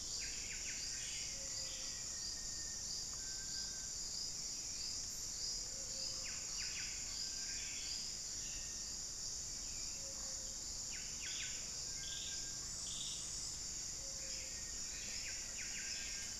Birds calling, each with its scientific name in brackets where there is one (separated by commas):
Ruddy Quail-Dove (Geotrygon montana), Buff-breasted Wren (Cantorchilus leucotis), Black-faced Antthrush (Formicarius analis), Little Tinamou (Crypturellus soui), unidentified bird, Cinereous Tinamou (Crypturellus cinereus)